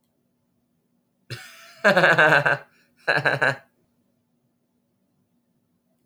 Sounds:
Laughter